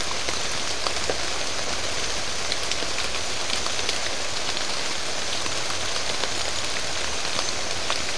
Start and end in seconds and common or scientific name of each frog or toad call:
none